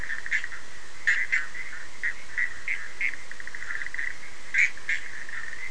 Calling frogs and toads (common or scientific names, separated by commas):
Bischoff's tree frog